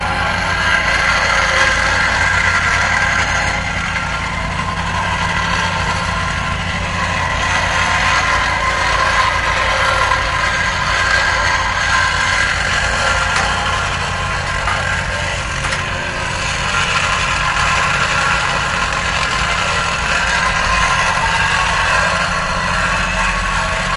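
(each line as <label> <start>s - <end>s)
Multiple loud sounds of drilling and hammering. 0.0s - 23.9s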